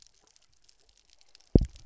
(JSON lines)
{"label": "biophony, double pulse", "recorder": "SoundTrap 300"}